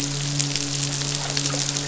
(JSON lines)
{"label": "biophony, midshipman", "recorder": "SoundTrap 500"}